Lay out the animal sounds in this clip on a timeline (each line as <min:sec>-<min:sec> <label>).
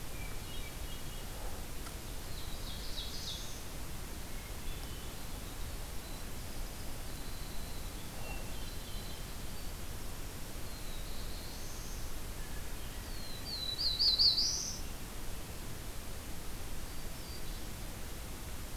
0:00.0-0:01.3 Hermit Thrush (Catharus guttatus)
0:02.3-0:03.7 Black-throated Blue Warbler (Setophaga caerulescens)
0:04.0-0:05.1 Hermit Thrush (Catharus guttatus)
0:04.1-0:08.0 Winter Wren (Troglodytes hiemalis)
0:08.0-0:09.4 Hermit Thrush (Catharus guttatus)
0:10.5-0:12.2 Black-throated Blue Warbler (Setophaga caerulescens)
0:12.9-0:15.0 Black-throated Blue Warbler (Setophaga caerulescens)
0:16.6-0:17.9 Hermit Thrush (Catharus guttatus)